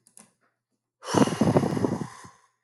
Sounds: Sigh